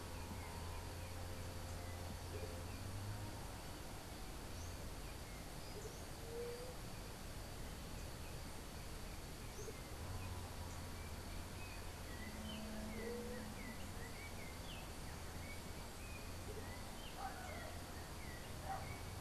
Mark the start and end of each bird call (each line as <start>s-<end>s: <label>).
6.2s-6.8s: White-tipped Dove (Leptotila verreauxi)
10.8s-19.2s: Yellow-backed Oriole (Icterus chrysater)
12.9s-13.5s: White-tipped Dove (Leptotila verreauxi)